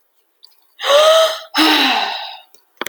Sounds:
Sigh